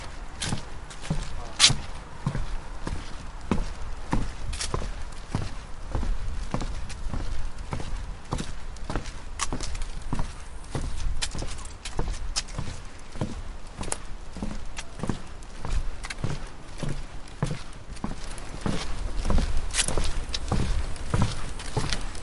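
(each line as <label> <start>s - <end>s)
Footsteps on wooden ground playing in short, periodic pulses nearby. 0.0s - 22.2s
Someone moans briefly in a muffled way nearby. 1.3s - 2.1s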